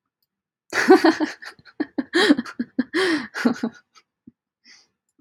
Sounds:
Laughter